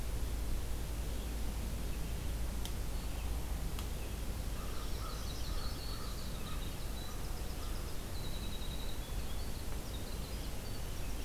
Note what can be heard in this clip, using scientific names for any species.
Vireo olivaceus, Corvus brachyrhynchos, Setophaga virens, Setophaga coronata, Troglodytes hiemalis, Turdus migratorius